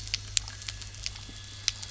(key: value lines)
label: anthrophony, boat engine
recorder: SoundTrap 300